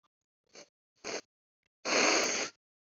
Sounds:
Sniff